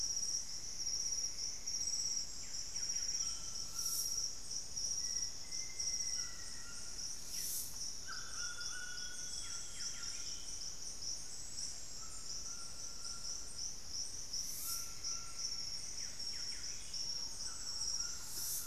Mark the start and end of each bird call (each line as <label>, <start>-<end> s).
Golden-crowned Spadebill (Platyrinchus coronatus), 0.0-18.7 s
Buff-breasted Wren (Cantorchilus leucotis), 2.4-3.7 s
White-throated Toucan (Ramphastos tucanus), 3.1-18.7 s
Black-faced Antthrush (Formicarius analis), 4.7-6.9 s
unidentified bird, 7.2-7.6 s
Amazonian Grosbeak (Cyanoloxia rothschildii), 8.0-10.9 s
Buff-breasted Wren (Cantorchilus leucotis), 9.2-17.2 s
Plumbeous Antbird (Myrmelastes hyperythrus), 14.2-16.3 s
Thrush-like Wren (Campylorhynchus turdinus), 16.9-18.7 s